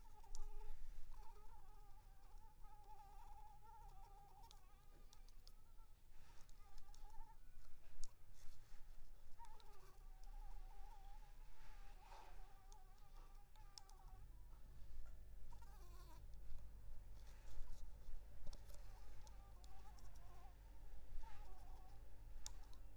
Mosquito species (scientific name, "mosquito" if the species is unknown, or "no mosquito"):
Anopheles arabiensis